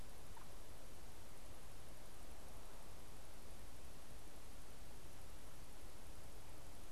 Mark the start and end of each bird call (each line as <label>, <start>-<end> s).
unidentified bird, 0.2-0.6 s